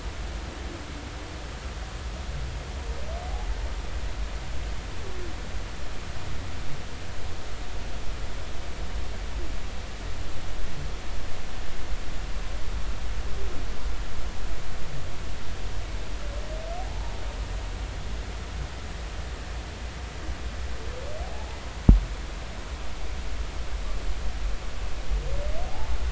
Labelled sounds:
17.8	18.1	humpback whale, 0.80 to 0.99 kHz
21.2	21.6	humpback whale, 0.80 to 0.99 kHz
25.6	25.9	humpback whale, 0.80 to 0.96 kHz

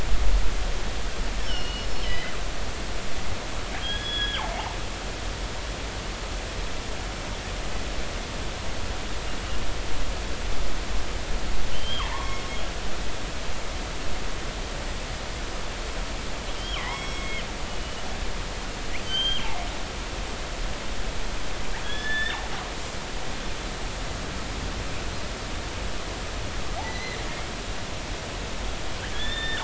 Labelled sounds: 1.5	2.3	killer whale, northern resident, G clan, GG subclan, call N23ii, 1.8 to 4.4 kHz
3.8	4.5	killer whale, northern resident, G clan, GG subclan, call N28, 1.4 to 5.1 kHz
4.5	4.8	killer whale, northern resident, G clan, call N23i, 0.80 to 1.1 kHz
11.7	12.4	killer whale, northern resident, G clan, call N23i, 0.83 to 3.3 kHz
16.8	17.4	killer whale, northern resident, G clan, call N23i, 1.9 to 5.6 kHz
17.7	18.0	killer whale, northern resident, G clan, 2.9 to 3.0 kHz
19.0	19.6	killer whale, northern resident, G clan, GG subclan, call N28, 2.6 to 6.4 kHz
21.8	22.4	killer whale, northern resident, G clan, GG subclan, call N28, 1.5 to 3.7 kHz
26.8	27.2	killer whale, northern resident, G clan, 1.8 to 6.2 kHz
29.1	29.6	killer whale, northern resident, G clan, GG subclan, call N28, 1.4 to 3.7 kHz

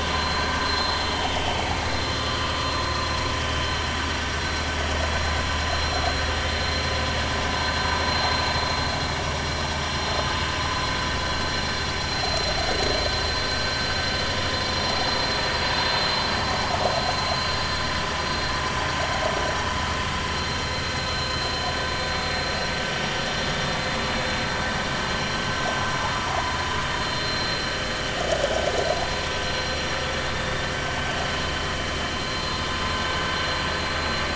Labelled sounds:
0.2	0.9	vessel noise, 4.1 to 4.2 kHz
12.2	12.5	vessel noise, 4.0 to 4.1 kHz
20.3	21.4	vessel noise, 4.0 to 4.2 kHz
27.0	27.6	vessel noise, 4.0 to 4.2 kHz
32.3	32.6	vessel noise, 4.1 to 4.2 kHz

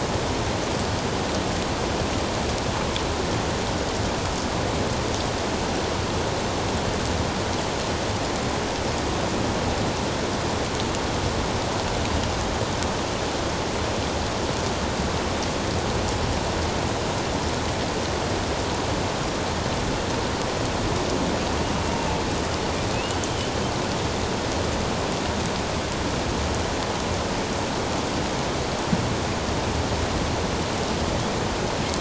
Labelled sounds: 22.9	23.2	killer whale, northern resident, A clan, AB subclan, 2.5 to 3.0 kHz

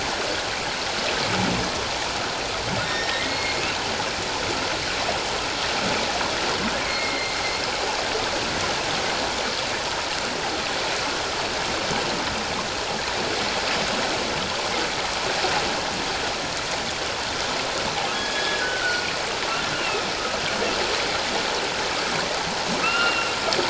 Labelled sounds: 2.9	3.6	humpback whale, 1.8 to 5.5 kHz
6.8	7.4	humpback whale, 1.9 to 4.3 kHz
18.1	19.1	humpback whale, 1.3 to 3.6 kHz
19.7	20.0	humpback whale, 2.5 to 2.9 kHz
22.8	23.3	humpback whale, 1.2 to 2.9 kHz

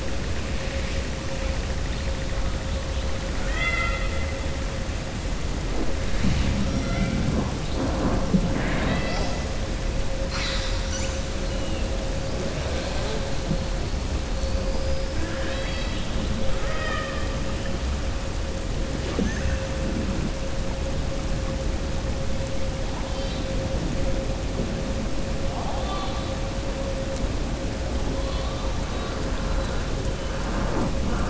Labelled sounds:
3.3	4.1	killer whale, southern resident, 0.69 to 4.8 kHz
15.1	16.1	killer whale, southern resident, 1.0 to 5.2 kHz
16.5	17.3	killer whale, southern resident, 0.61 to 3.8 kHz
28.1	28.7	killer whale, southern resident, 2.6 to 4.6 kHz

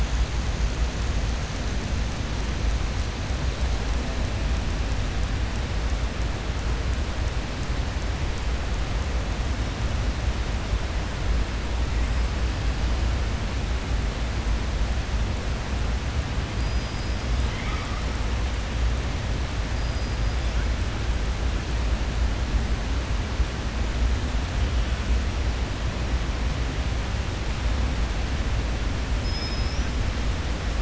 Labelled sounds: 29.1	29.9	killer whale, southern resident, 3.5 to 5.9 kHz

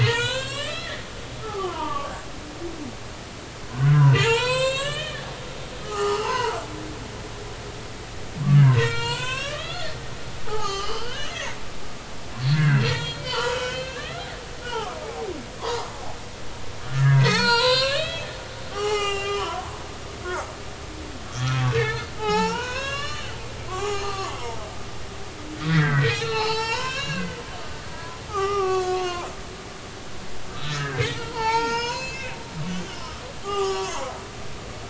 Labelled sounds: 0.0	1.0	humpback whale, 0.86 to 7.9 kHz
1.4	2.1	humpback whale, 0.80 to 1.4 kHz
3.7	5.3	humpback whale, 0.86 to 8.0 kHz
5.9	6.6	humpback whale, 0.80 to 4.6 kHz
6.8	7.3	humpback whale, 1.1 to 1.4 kHz
8.5	11.4	humpback whale, 0.80 to 8.0 kHz
12.5	15.8	humpback whale, 0.83 to 4.3 kHz
16.9	18.3	humpback whale, 0.80 to 8.0 kHz
18.7	20.5	humpback whale, 0.80 to 7.7 kHz
21.5	23.4	humpback whale, 0.80 to 7.4 kHz
23.7	24.7	humpback whale, 0.80 to 7.0 kHz
25.6	27.4	humpback whale, 0.80 to 7.3 kHz
27.9	29.3	humpback whale, 0.80 to 6.5 kHz
30.5	32.4	humpback whale, 0.83 to 7.0 kHz
33.4	34.2	humpback whale, 0.80 to 5.1 kHz

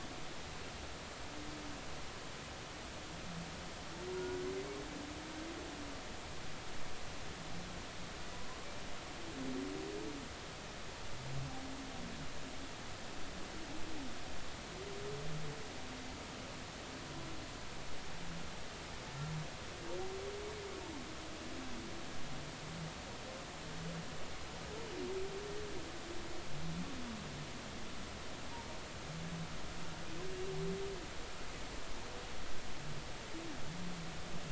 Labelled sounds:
4.2	4.5	humpback whale, 1.4 to 1.5 kHz

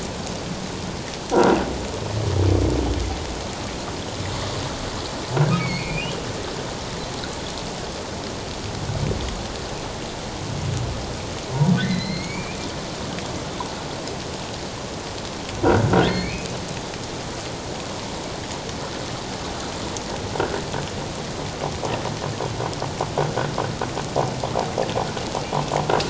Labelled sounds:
5.6	6.2	humpback whale, 2.1 to 4.6 kHz
11.8	12.6	humpback whale, 1.7 to 4.4 kHz
16.1	16.5	humpback whale, 1.8 to 4.5 kHz

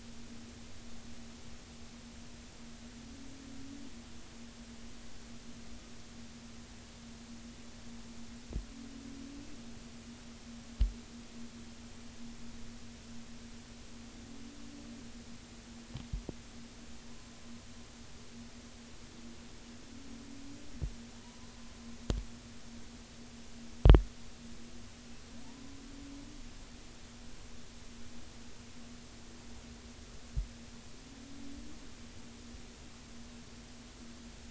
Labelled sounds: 21.2	21.5	humpback whale, 0.90 to 1.1 kHz

